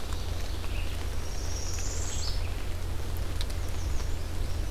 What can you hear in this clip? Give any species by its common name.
Ovenbird, Red-eyed Vireo, Northern Parula, American Redstart